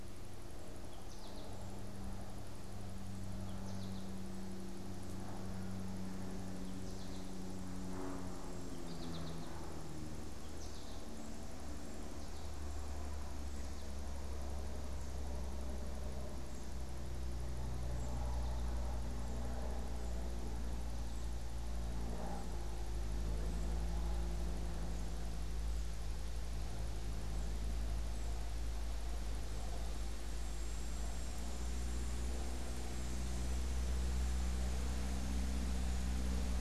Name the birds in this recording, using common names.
American Goldfinch, unidentified bird